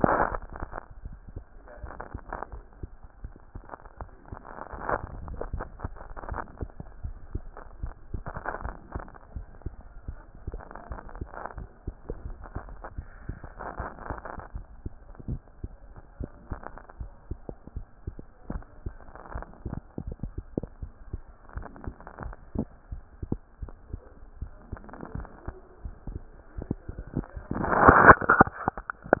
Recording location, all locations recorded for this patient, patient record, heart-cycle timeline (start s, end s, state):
mitral valve (MV)
aortic valve (AV)+pulmonary valve (PV)+tricuspid valve (TV)+mitral valve (MV)
#Age: Child
#Sex: Male
#Height: 127.0 cm
#Weight: 26.6 kg
#Pregnancy status: False
#Murmur: Absent
#Murmur locations: nan
#Most audible location: nan
#Systolic murmur timing: nan
#Systolic murmur shape: nan
#Systolic murmur grading: nan
#Systolic murmur pitch: nan
#Systolic murmur quality: nan
#Diastolic murmur timing: nan
#Diastolic murmur shape: nan
#Diastolic murmur grading: nan
#Diastolic murmur pitch: nan
#Diastolic murmur quality: nan
#Outcome: Abnormal
#Campaign: 2014 screening campaign
0.00	14.54	unannotated
14.54	14.66	S1
14.66	14.84	systole
14.84	14.92	S2
14.92	15.28	diastole
15.28	15.40	S1
15.40	15.62	systole
15.62	15.72	S2
15.72	16.18	diastole
16.18	16.30	S1
16.30	16.50	systole
16.50	16.60	S2
16.60	17.00	diastole
17.00	17.10	S1
17.10	17.30	systole
17.30	17.40	S2
17.40	17.76	diastole
17.76	17.86	S1
17.86	18.06	systole
18.06	18.14	S2
18.14	18.50	diastole
18.50	18.62	S1
18.62	18.84	systole
18.84	18.94	S2
18.94	19.34	diastole
19.34	19.46	S1
19.46	19.66	systole
19.66	19.75	S2
19.75	20.06	diastole
20.06	20.16	S1
20.16	20.38	systole
20.38	20.44	S2
20.44	20.82	diastole
20.82	20.92	S1
20.92	21.12	systole
21.12	21.22	S2
21.22	21.56	diastole
21.56	21.66	S1
21.66	21.84	systole
21.84	21.94	S2
21.94	22.22	diastole
22.22	29.20	unannotated